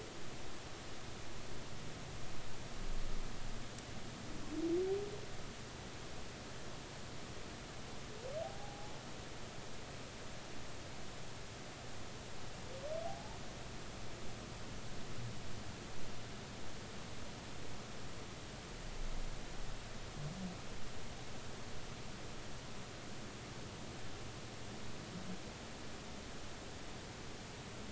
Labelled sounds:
8.4	9.0	humpback whale, 0.80 to 0.90 kHz
13.1	13.4	humpback whale, 0.80 to 0.99 kHz

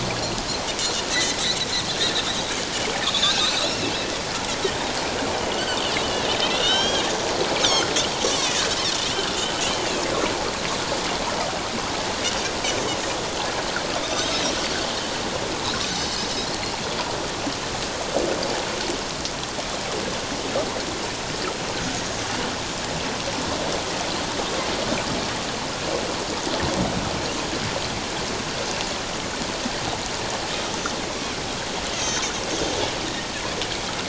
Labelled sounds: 1.1	1.4	Pacific white-sided dolphin, 1.8 to 6.2 kHz
3.0	3.6	Pacific white-sided dolphin, 2.4 to 4.1 kHz
5.4	8.6	Pacific white-sided dolphin, 1.4 to 6.6 kHz
9.3	9.5	Pacific white-sided dolphin, 2.7 to 3.1 kHz
14.0	14.3	Pacific white-sided dolphin, 3.6 to 3.9 kHz
16.5	16.7	Pacific white-sided dolphin, 4.0 to 4.4 kHz
31.9	32.3	Pacific white-sided dolphin, 3.1 to 6.7 kHz

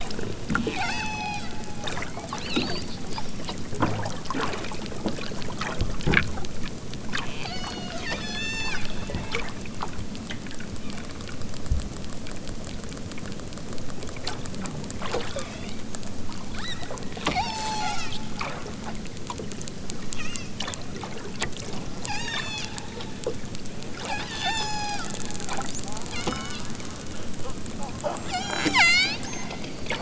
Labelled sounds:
0.7	1.4	killer whale, southern Alaska resident, 0.46 to 8.0 kHz
7.1	8.8	killer whale, southern Alaska resident, 0.51 to 8.0 kHz
15.2	15.9	killer whale, southern Alaska resident, 0.88 to 7.0 kHz
16.4	16.8	killer whale, southern Alaska resident, 1.2 to 6.5 kHz
17.2	18.1	killer whale, southern Alaska resident, 0.37 to 8.0 kHz
20.1	20.5	killer whale, southern Alaska resident, 0.92 to 6.5 kHz
22.1	22.7	killer whale, southern Alaska resident, 0.55 to 8.0 kHz
23.9	25.1	killer whale, southern Alaska resident, 0.41 to 8.0 kHz
25.8	27.1	killer whale, southern Alaska resident, 0.51 to 6.9 kHz
28.2	29.7	killer whale, southern Alaska resident, 0.41 to 8.0 kHz

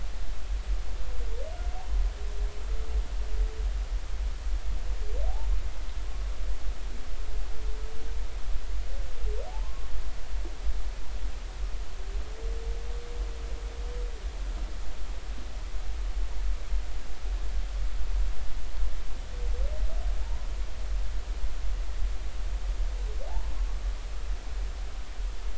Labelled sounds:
9.5	9.9	humpback whale, 0.80 to 1.2 kHz
20.2	20.5	humpback whale, 0.83 to 1.0 kHz

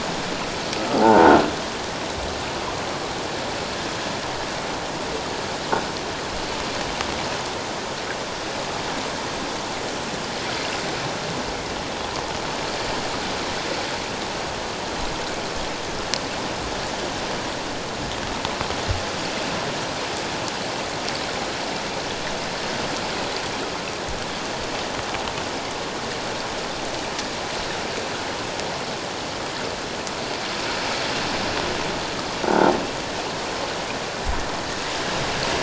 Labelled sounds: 1.0	1.3	croaking sound likely from a nearby submerged object, 0.78 to 1.1 kHz
32.4	32.7	croaking sound likely from a nearby submerged object, 1.3 to 1.6 kHz

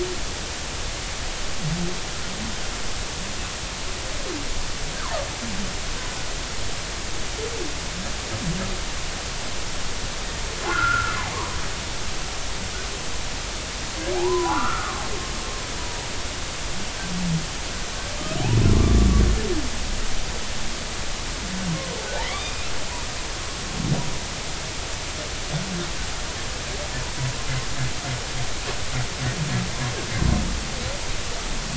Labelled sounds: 10.7	11.6	humpback whale, 0.90 to 1.5 kHz
14.2	15.0	humpback whale, 0.80 to 1.5 kHz
22.2	22.7	humpback whale, 1.6 to 5.0 kHz

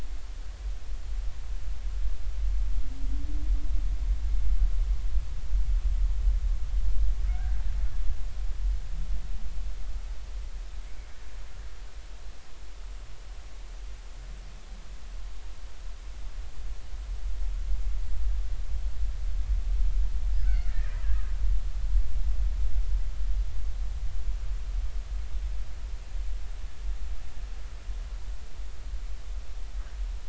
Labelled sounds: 7.3	7.6	humpback whale, 1.3 to 1.7 kHz
20.4	21.0	killer whale, Bigg's (transient), 1.3 to 2.3 kHz

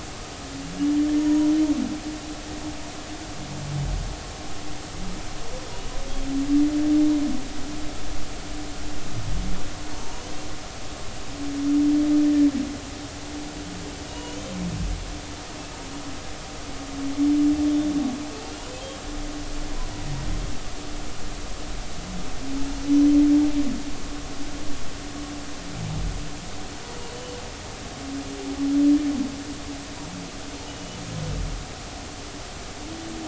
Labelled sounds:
1.0	1.5	humpback whale, 0.90 to 6.8 kHz
10.9	11.2	humpback whale, 0.90 to 1.0 kHz
14.1	14.5	humpback whale, 0.93 to 3.2 kHz
27.1	27.4	humpback whale, 2.9 to 3.1 kHz
30.7	31.0	humpback whale, 2.9 to 3.0 kHz

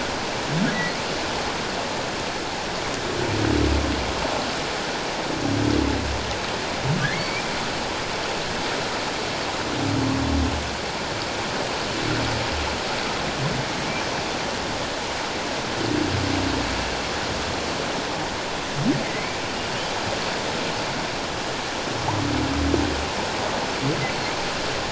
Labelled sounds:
7.1	7.5	humpback whale, 1.9 to 2.4 kHz
19.0	19.4	humpback whale, 1.9 to 2.4 kHz

